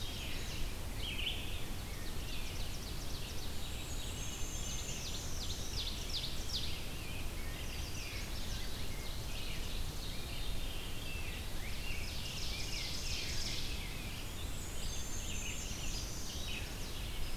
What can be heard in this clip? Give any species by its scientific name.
Setophaga pensylvanica, Vireo olivaceus, Seiurus aurocapilla, Mniotilta varia, Pheucticus ludovicianus